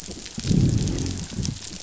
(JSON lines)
{"label": "biophony, growl", "recorder": "SoundTrap 500"}